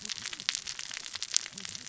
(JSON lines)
{"label": "biophony, cascading saw", "recorder": "SoundTrap 600 or HydroMoth"}